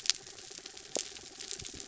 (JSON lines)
{"label": "anthrophony, mechanical", "recorder": "SoundTrap 300"}